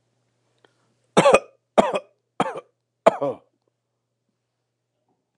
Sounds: Cough